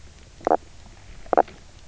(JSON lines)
{"label": "biophony, knock croak", "recorder": "SoundTrap 300"}